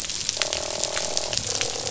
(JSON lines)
{"label": "biophony, croak", "recorder": "SoundTrap 500"}